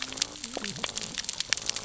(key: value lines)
label: biophony, cascading saw
recorder: SoundTrap 600 or HydroMoth